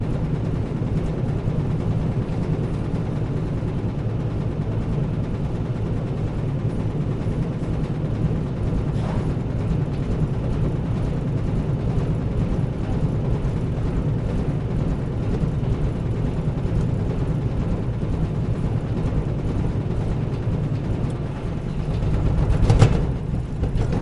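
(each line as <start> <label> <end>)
0.0 A washing machine is washing clothes and vibrating loudly. 24.0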